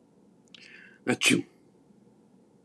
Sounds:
Sneeze